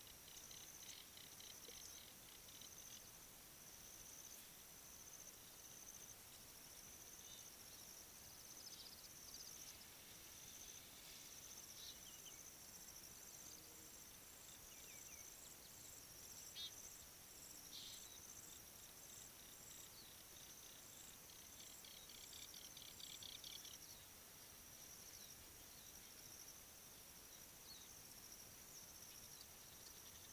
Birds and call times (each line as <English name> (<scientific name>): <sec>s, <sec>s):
African Jacana (Actophilornis africanus): 1.5s, 22.9s
Egyptian Goose (Alopochen aegyptiaca): 7.4s, 16.7s